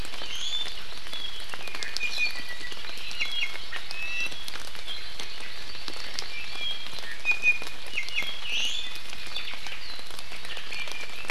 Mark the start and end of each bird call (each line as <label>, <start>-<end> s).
Hawaii Amakihi (Chlorodrepanis virens), 0.0-1.6 s
Iiwi (Drepanis coccinea), 0.1-0.8 s
Apapane (Himatione sanguinea), 1.1-2.8 s
Iiwi (Drepanis coccinea), 2.0-2.5 s
Iiwi (Drepanis coccinea), 3.0-4.5 s
Iiwi (Drepanis coccinea), 7.0-9.0 s
Omao (Myadestes obscurus), 9.2-9.8 s
Iiwi (Drepanis coccinea), 10.4-11.3 s